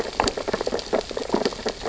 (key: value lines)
label: biophony, sea urchins (Echinidae)
recorder: SoundTrap 600 or HydroMoth